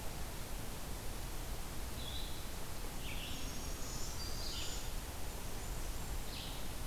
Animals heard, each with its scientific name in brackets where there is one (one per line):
Black-throated Green Warbler (Setophaga virens)
Red-eyed Vireo (Vireo olivaceus)
unidentified call
Blackburnian Warbler (Setophaga fusca)